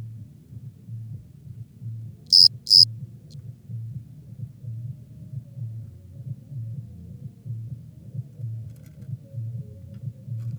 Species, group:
Eumodicogryllus bordigalensis, Orthoptera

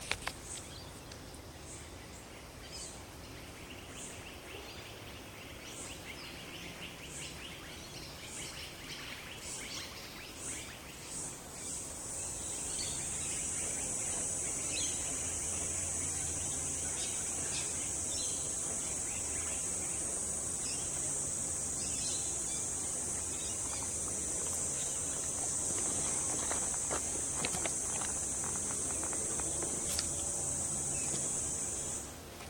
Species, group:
Aleeta curvicosta, Cicadidae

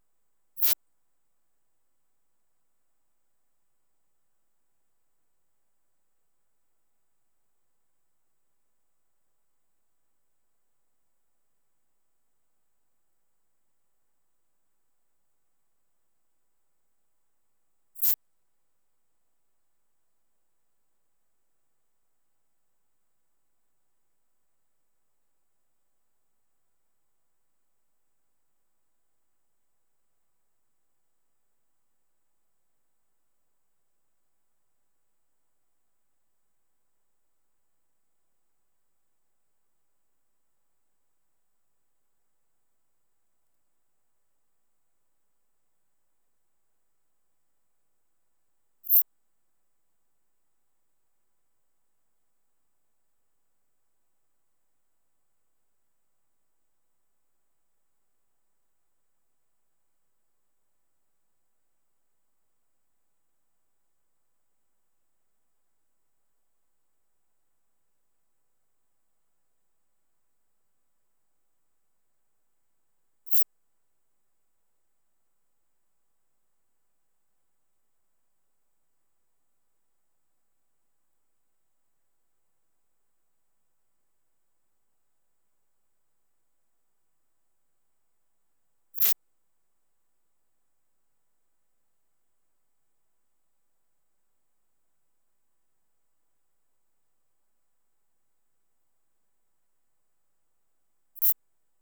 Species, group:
Eupholidoptera latens, Orthoptera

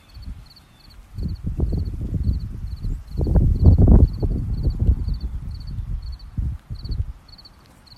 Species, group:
Gryllus pennsylvanicus, Orthoptera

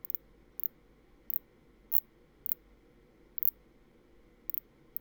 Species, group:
Phaneroptera nana, Orthoptera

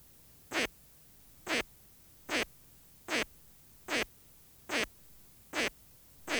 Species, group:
Poecilimon luschani, Orthoptera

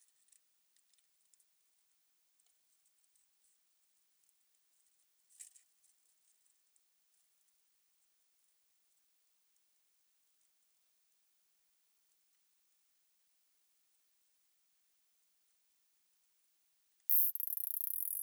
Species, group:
Isophya longicaudata, Orthoptera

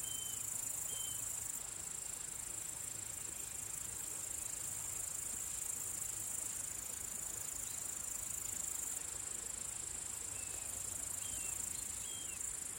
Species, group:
Tettigonia cantans, Orthoptera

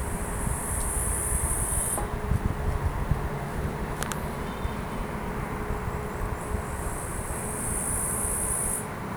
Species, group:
Tettigonia cantans, Orthoptera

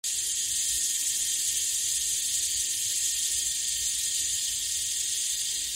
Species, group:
Aleeta curvicosta, Cicadidae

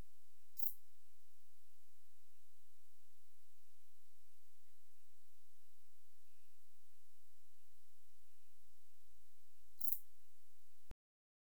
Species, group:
Platycleis albopunctata, Orthoptera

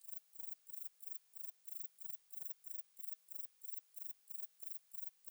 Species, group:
Broughtonia domogledi, Orthoptera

